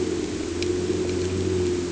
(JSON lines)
{"label": "anthrophony, boat engine", "recorder": "HydroMoth"}